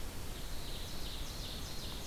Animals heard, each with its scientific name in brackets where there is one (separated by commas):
Winter Wren (Troglodytes hiemalis), Ovenbird (Seiurus aurocapilla)